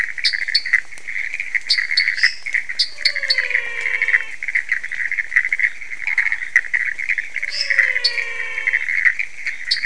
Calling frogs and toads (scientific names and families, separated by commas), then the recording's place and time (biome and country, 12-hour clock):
Pithecopus azureus (Hylidae), Dendropsophus nanus (Hylidae), Dendropsophus minutus (Hylidae), Physalaemus albonotatus (Leptodactylidae), Boana raniceps (Hylidae)
Cerrado, Brazil, 2:45am